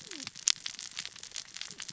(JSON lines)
{"label": "biophony, cascading saw", "recorder": "SoundTrap 600 or HydroMoth"}